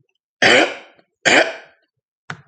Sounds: Throat clearing